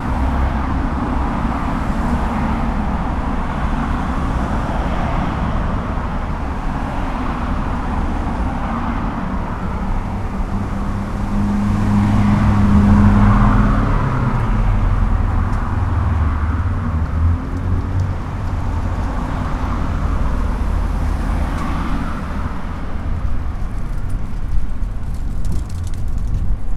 Do these machines have wheels?
yes